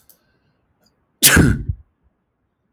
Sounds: Sneeze